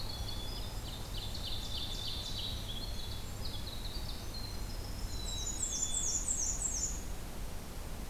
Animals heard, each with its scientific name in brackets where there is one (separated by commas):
Winter Wren (Troglodytes hiemalis), Black-capped Chickadee (Poecile atricapillus), Black-and-white Warbler (Mniotilta varia), Ovenbird (Seiurus aurocapilla)